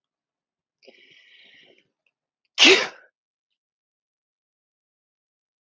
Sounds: Sneeze